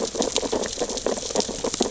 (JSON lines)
{"label": "biophony, sea urchins (Echinidae)", "recorder": "SoundTrap 600 or HydroMoth"}